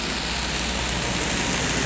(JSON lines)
{"label": "anthrophony, boat engine", "recorder": "SoundTrap 500"}